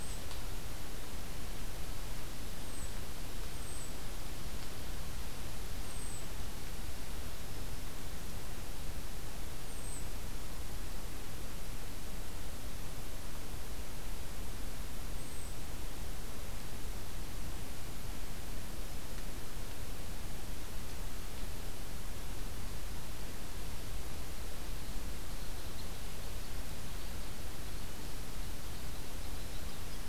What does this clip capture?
Red Crossbill